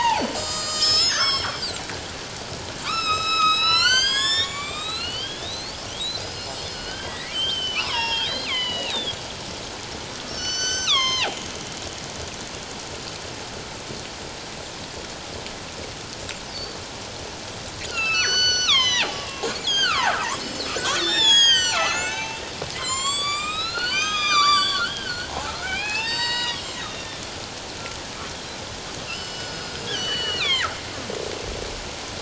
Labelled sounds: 1.2	1.8	killer whale, northern resident, G clan, 3.1 to 8.0 kHz
2.8	5.9	killer whale, northern resident, G clan, 0.88 to 8.0 kHz
6.2	9.2	killer whale, northern resident, G clan, 0.84 to 7.9 kHz
10.3	11.4	killer whale, northern resident, G clan, 0.78 to 7.7 kHz
16.5	16.8	killer whale, northern resident, G clan, 4.4 to 4.7 kHz
17.9	27.2	killer whale, northern resident, G clan, 0.78 to 8.0 kHz
29.1	30.7	killer whale, northern resident, G clan, 0.91 to 7.5 kHz

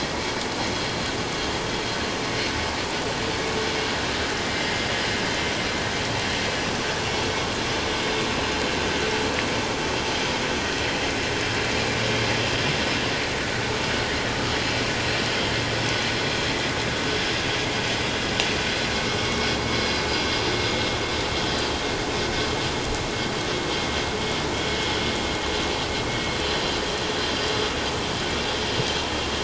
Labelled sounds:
4.4	4.7	vessel noise, 2.0 to 2.1 kHz
19.2	19.5	vessel noise, 2.16 to 2.25 kHz

